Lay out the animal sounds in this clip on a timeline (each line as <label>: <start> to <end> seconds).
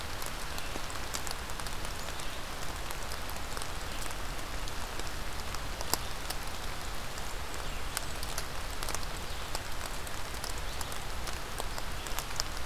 Blackburnian Warbler (Setophaga fusca): 6.9 to 8.4 seconds